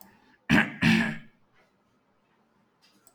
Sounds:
Throat clearing